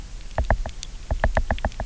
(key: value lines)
label: biophony, knock
recorder: SoundTrap 300